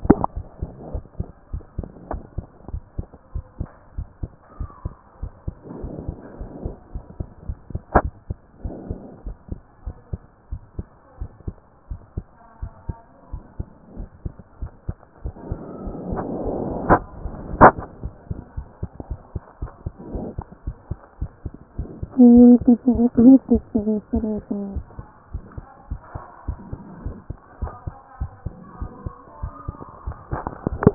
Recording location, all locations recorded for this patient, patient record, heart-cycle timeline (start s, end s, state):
pulmonary valve (PV)
aortic valve (AV)+pulmonary valve (PV)+tricuspid valve (TV)+mitral valve (MV)
#Age: Child
#Sex: Male
#Height: 142.0 cm
#Weight: 36.2 kg
#Pregnancy status: False
#Murmur: Absent
#Murmur locations: nan
#Most audible location: nan
#Systolic murmur timing: nan
#Systolic murmur shape: nan
#Systolic murmur grading: nan
#Systolic murmur pitch: nan
#Systolic murmur quality: nan
#Diastolic murmur timing: nan
#Diastolic murmur shape: nan
#Diastolic murmur grading: nan
#Diastolic murmur pitch: nan
#Diastolic murmur quality: nan
#Outcome: Abnormal
#Campaign: 2014 screening campaign
0.00	0.28	unannotated
0.28	0.36	diastole
0.36	0.46	S1
0.46	0.60	systole
0.60	0.68	S2
0.68	0.92	diastole
0.92	1.04	S1
1.04	1.18	systole
1.18	1.28	S2
1.28	1.52	diastole
1.52	1.62	S1
1.62	1.78	systole
1.78	1.88	S2
1.88	2.10	diastole
2.10	2.22	S1
2.22	2.36	systole
2.36	2.46	S2
2.46	2.70	diastole
2.70	2.82	S1
2.82	2.96	systole
2.96	3.06	S2
3.06	3.34	diastole
3.34	3.44	S1
3.44	3.58	systole
3.58	3.68	S2
3.68	3.96	diastole
3.96	4.06	S1
4.06	4.22	systole
4.22	4.32	S2
4.32	4.58	diastole
4.58	4.70	S1
4.70	4.84	systole
4.84	4.94	S2
4.94	5.20	diastole
5.20	5.32	S1
5.32	5.46	systole
5.46	5.56	S2
5.56	5.80	diastole
5.80	5.92	S1
5.92	6.06	systole
6.06	6.16	S2
6.16	6.40	diastole
6.40	6.50	S1
6.50	6.64	systole
6.64	6.74	S2
6.74	6.94	diastole
6.94	7.04	S1
7.04	7.18	systole
7.18	7.28	S2
7.28	7.48	diastole
7.48	7.58	S1
7.58	7.72	systole
7.72	7.80	S2
7.80	8.03	diastole
8.03	8.12	S1
8.12	8.28	systole
8.28	8.36	S2
8.36	8.62	diastole
8.62	8.74	S1
8.74	8.88	systole
8.88	8.98	S2
8.98	9.24	diastole
9.24	9.36	S1
9.36	9.50	systole
9.50	9.60	S2
9.60	9.84	diastole
9.84	9.96	S1
9.96	10.12	systole
10.12	10.22	S2
10.22	10.50	diastole
10.50	10.60	S1
10.60	10.78	systole
10.78	10.86	S2
10.86	11.20	diastole
11.20	11.30	S1
11.30	11.46	systole
11.46	11.56	S2
11.56	11.90	diastole
11.90	12.00	S1
12.00	12.16	systole
12.16	12.26	S2
12.26	12.60	diastole
12.60	12.72	S1
12.72	12.88	systole
12.88	12.96	S2
12.96	13.32	diastole
13.32	13.42	S1
13.42	13.58	systole
13.58	13.68	S2
13.68	13.96	diastole
13.96	14.08	S1
14.08	14.24	systole
14.24	14.34	S2
14.34	14.60	diastole
14.60	14.72	S1
14.72	14.88	systole
14.88	14.98	S2
14.98	15.24	diastole
15.24	15.34	S1
15.34	15.50	systole
15.50	15.58	S2
15.58	15.84	diastole
15.84	30.94	unannotated